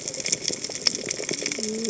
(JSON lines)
{"label": "biophony, cascading saw", "recorder": "HydroMoth"}